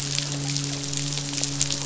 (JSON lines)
{"label": "biophony, midshipman", "recorder": "SoundTrap 500"}